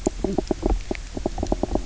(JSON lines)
{"label": "biophony, knock croak", "recorder": "SoundTrap 300"}